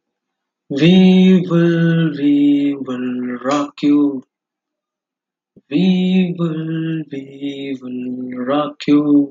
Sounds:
Sigh